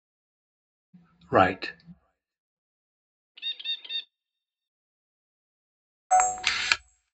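First, someone says "right". Then a bird can be heard. Finally, the sound of a camera is heard.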